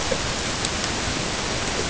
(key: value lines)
label: ambient
recorder: HydroMoth